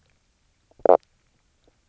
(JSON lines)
{"label": "biophony, knock croak", "recorder": "SoundTrap 300"}